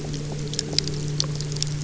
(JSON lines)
{"label": "anthrophony, boat engine", "recorder": "SoundTrap 300"}